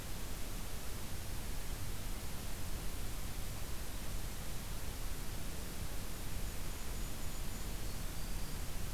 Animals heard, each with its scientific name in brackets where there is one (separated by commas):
Black-throated Green Warbler (Setophaga virens), Golden-crowned Kinglet (Regulus satrapa)